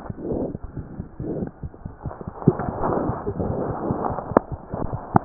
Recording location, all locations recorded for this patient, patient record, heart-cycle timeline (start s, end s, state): mitral valve (MV)
aortic valve (AV)+aortic valve (AV)+mitral valve (MV)+mitral valve (MV)
#Age: Infant
#Sex: Female
#Height: 66.0 cm
#Weight: 8.2 kg
#Pregnancy status: False
#Murmur: Absent
#Murmur locations: nan
#Most audible location: nan
#Systolic murmur timing: nan
#Systolic murmur shape: nan
#Systolic murmur grading: nan
#Systolic murmur pitch: nan
#Systolic murmur quality: nan
#Diastolic murmur timing: nan
#Diastolic murmur shape: nan
#Diastolic murmur grading: nan
#Diastolic murmur pitch: nan
#Diastolic murmur quality: nan
#Outcome: Abnormal
#Campaign: 2014 screening campaign
0.00	0.71	unannotated
0.71	0.78	diastole
0.78	0.86	S1
0.86	0.98	systole
0.98	1.04	S2
1.04	1.20	diastole
1.20	1.28	S1
1.28	1.42	systole
1.42	1.48	S2
1.48	1.63	diastole
1.63	1.71	S1
1.71	1.85	systole
1.85	1.92	S2
1.92	2.05	diastole
2.05	2.14	S1
2.14	2.27	systole
2.27	2.34	S2
2.34	2.46	diastole
2.46	2.54	S1
2.54	2.67	systole
2.67	2.73	S2
2.73	2.86	diastole
2.86	5.25	unannotated